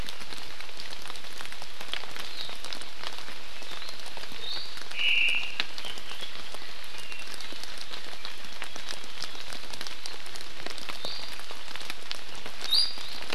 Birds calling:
Iiwi (Drepanis coccinea), Omao (Myadestes obscurus)

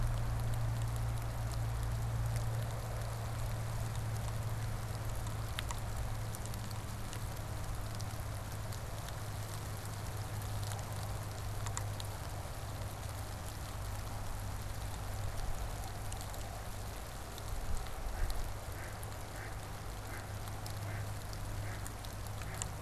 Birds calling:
Mallard (Anas platyrhynchos)

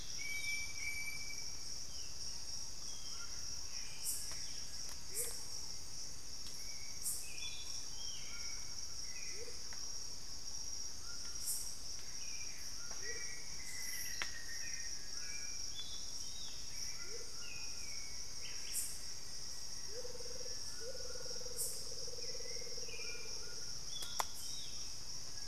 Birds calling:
Hauxwell's Thrush (Turdus hauxwelli), Black-faced Antthrush (Formicarius analis), Amazonian Motmot (Momotus momota), White-throated Toucan (Ramphastos tucanus), Black-spotted Bare-eye (Phlegopsis nigromaculata), Ringed Woodpecker (Celeus torquatus)

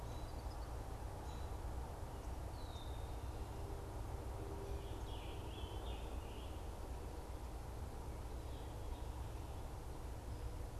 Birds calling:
Eastern Kingbird (Tyrannus tyrannus), Red-winged Blackbird (Agelaius phoeniceus), Scarlet Tanager (Piranga olivacea), American Robin (Turdus migratorius)

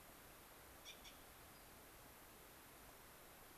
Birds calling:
unidentified bird

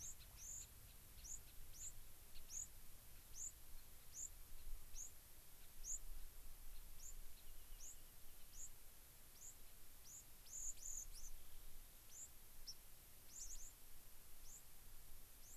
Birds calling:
Gray-crowned Rosy-Finch (Leucosticte tephrocotis), White-crowned Sparrow (Zonotrichia leucophrys), Rock Wren (Salpinctes obsoletus)

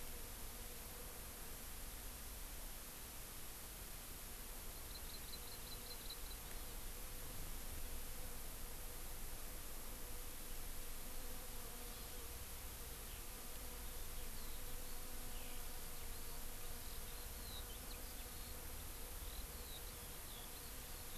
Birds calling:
Hawaii Amakihi (Chlorodrepanis virens), Eurasian Skylark (Alauda arvensis)

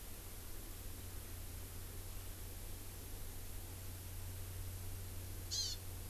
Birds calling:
Hawaii Amakihi (Chlorodrepanis virens)

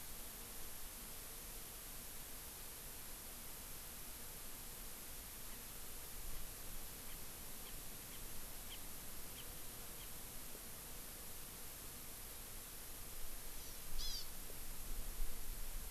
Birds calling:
Chinese Hwamei (Garrulax canorus), Hawaii Amakihi (Chlorodrepanis virens)

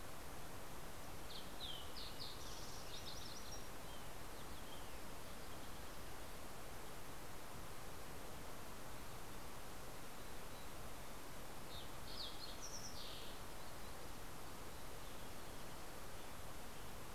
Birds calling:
Ruby-crowned Kinglet (Corthylio calendula), Fox Sparrow (Passerella iliaca), Mountain Chickadee (Poecile gambeli)

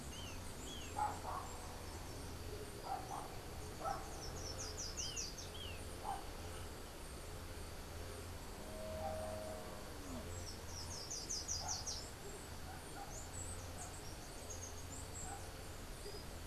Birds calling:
Golden-faced Tyrannulet (Zimmerius chrysops), Slate-throated Redstart (Myioborus miniatus)

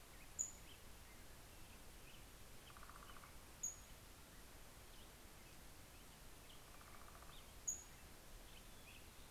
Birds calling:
Pacific-slope Flycatcher (Empidonax difficilis), Northern Flicker (Colaptes auratus), Black-headed Grosbeak (Pheucticus melanocephalus)

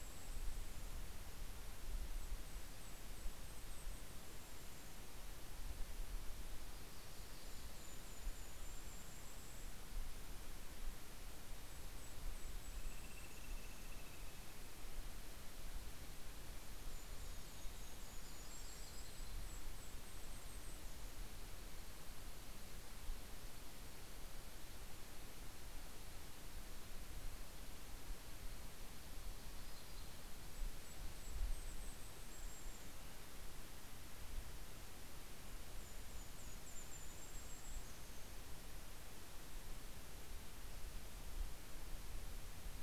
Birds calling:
Golden-crowned Kinglet (Regulus satrapa), Yellow-rumped Warbler (Setophaga coronata)

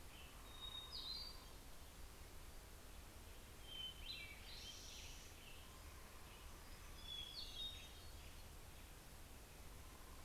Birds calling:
Hermit Warbler (Setophaga occidentalis), Hermit Thrush (Catharus guttatus)

